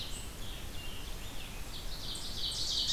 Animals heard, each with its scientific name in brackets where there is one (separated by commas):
Ovenbird (Seiurus aurocapilla), Scarlet Tanager (Piranga olivacea), unknown mammal